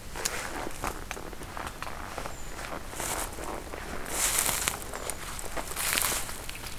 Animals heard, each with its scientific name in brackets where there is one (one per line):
Brown Creeper (Certhia americana)